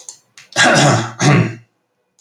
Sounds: Throat clearing